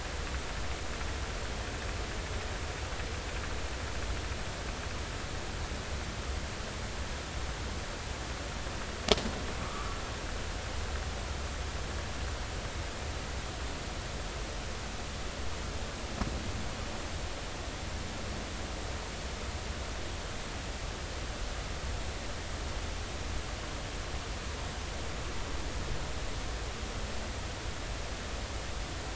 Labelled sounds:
9.6	10.0	humpback whale, 1.1 to 1.4 kHz

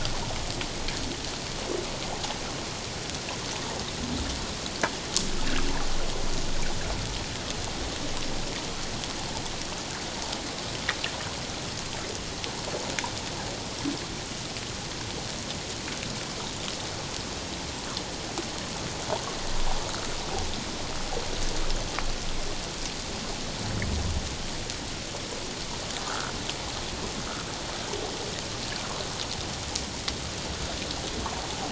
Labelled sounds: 26.0	26.3	fish, 1.2 to 1.6 kHz

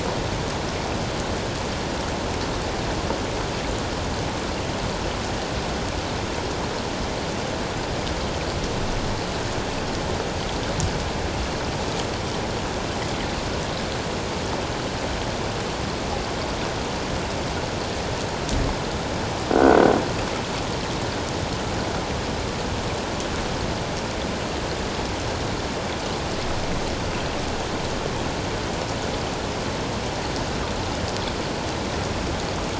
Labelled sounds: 19.5	19.8	croaking sound likely from a nearby submerged object, 1.4 to 1.6 kHz

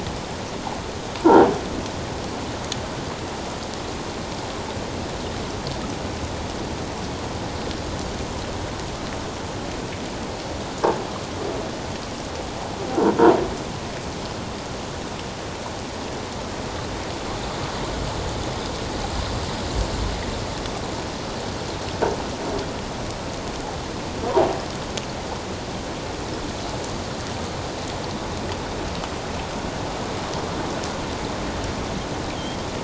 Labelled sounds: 32.3	32.6	Pacific white-sided dolphin, 3.1 to 3.5 kHz

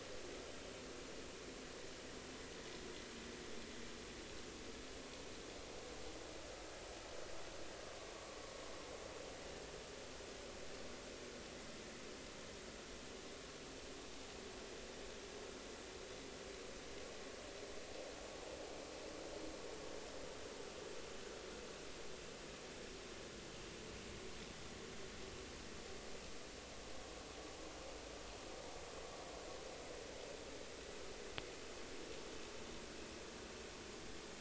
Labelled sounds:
8.1	8.4	vessel noise, 1.0 to 1.2 kHz

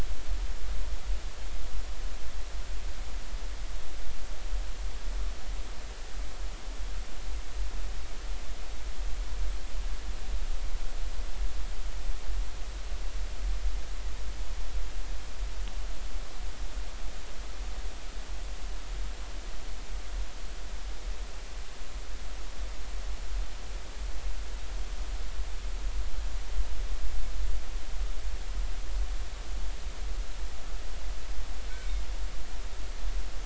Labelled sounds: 31.7	32.0	humpback whale, 2.1 to 2.3 kHz

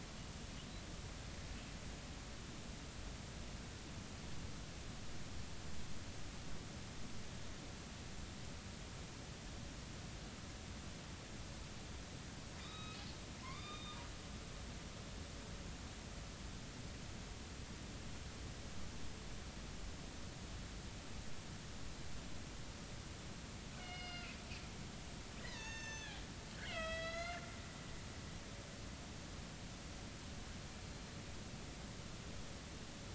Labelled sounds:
12.6	13.0	killer whale, northern resident, A clan, AB subclan, 1.2 to 3.9 kHz
13.4	14.0	killer whale, northern resident, A clan, AB subclan, call N05ii, 0.93 to 4.9 kHz
23.7	24.3	killer whale, northern resident, A clan, AB subclan, B01 pod, call N18, 1.4 to 5.1 kHz
25.4	26.2	killer whale, northern resident, A clan, AB subclan, 0.83 to 6.7 kHz
26.6	27.4	killer whale, northern resident, A clan, AB subclan, 1.2 to 5.2 kHz

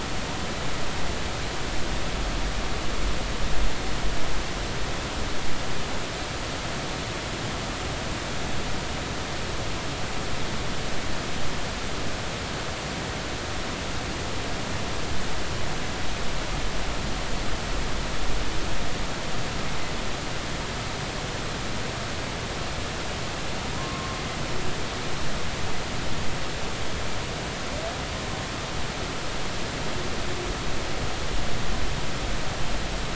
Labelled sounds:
23.8	24.2	humpback whale, 1.0 to 1.2 kHz

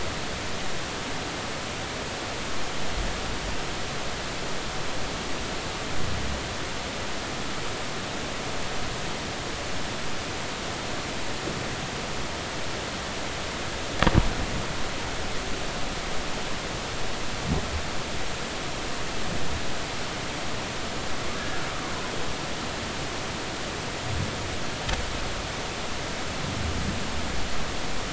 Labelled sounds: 21.4	21.6	humpback whale, 1.6 to 1.8 kHz

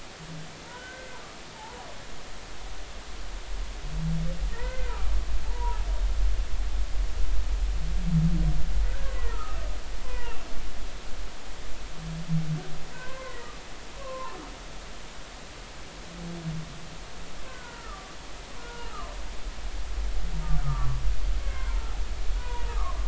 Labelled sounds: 0.7	1.2	humpback whale, 1.4 to 1.6 kHz
4.5	5.8	humpback whale, 0.83 to 2.1 kHz
8.8	9.6	humpback whale, 1.2 to 2.0 kHz
10.0	10.4	humpback whale, 0.90 to 2.0 kHz
12.9	13.5	humpback whale, 0.86 to 2.1 kHz
14.0	14.4	humpback whale, 0.83 to 1.3 kHz
17.5	18.9	humpback whale, 1.1 to 1.6 kHz
20.6	21.8	humpback whale, 0.90 to 2.2 kHz
22.4	23.0	humpback whale, 0.90 to 1.3 kHz

